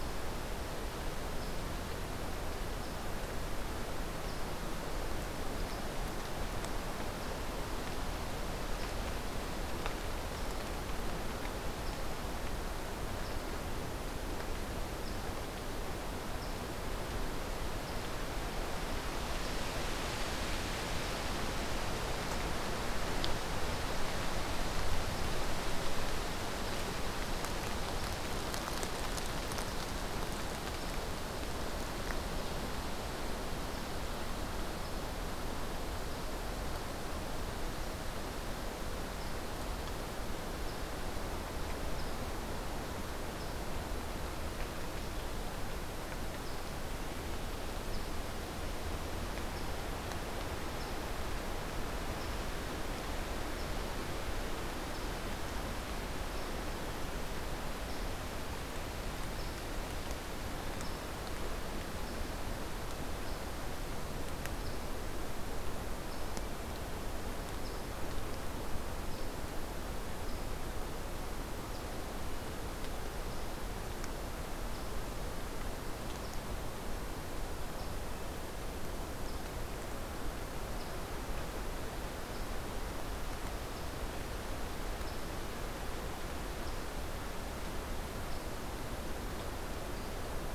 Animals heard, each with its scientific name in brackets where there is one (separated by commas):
unidentified call